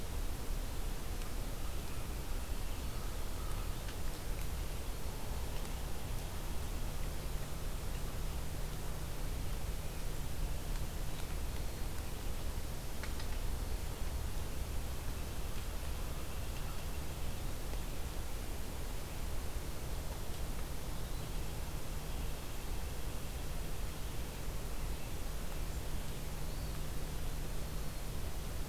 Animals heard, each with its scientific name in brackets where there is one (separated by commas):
Eastern Wood-Pewee (Contopus virens), American Crow (Corvus brachyrhynchos), Black-throated Green Warbler (Setophaga virens), White-breasted Nuthatch (Sitta carolinensis)